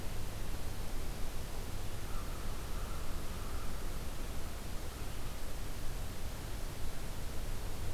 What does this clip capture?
American Crow